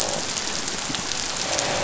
{"label": "biophony, croak", "recorder": "SoundTrap 500"}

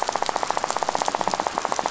{"label": "biophony, rattle", "recorder": "SoundTrap 500"}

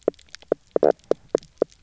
{"label": "biophony, knock croak", "recorder": "SoundTrap 300"}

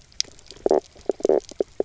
{"label": "biophony, knock croak", "recorder": "SoundTrap 300"}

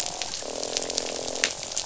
{"label": "biophony, croak", "recorder": "SoundTrap 500"}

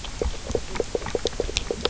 {"label": "biophony, knock croak", "recorder": "SoundTrap 300"}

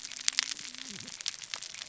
{"label": "biophony, cascading saw", "recorder": "SoundTrap 600 or HydroMoth"}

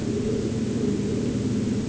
{"label": "anthrophony, boat engine", "recorder": "HydroMoth"}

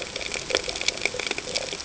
{"label": "ambient", "recorder": "HydroMoth"}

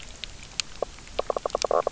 {"label": "biophony, knock croak", "recorder": "SoundTrap 300"}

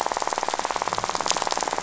{"label": "biophony, rattle", "recorder": "SoundTrap 500"}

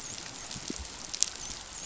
{"label": "biophony, dolphin", "recorder": "SoundTrap 500"}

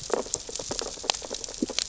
{"label": "biophony, sea urchins (Echinidae)", "recorder": "SoundTrap 600 or HydroMoth"}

